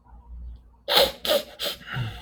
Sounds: Sniff